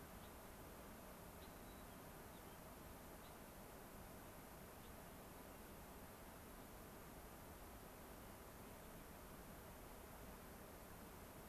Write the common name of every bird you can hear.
Gray-crowned Rosy-Finch, White-crowned Sparrow